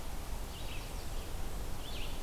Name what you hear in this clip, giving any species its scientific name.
Vireo olivaceus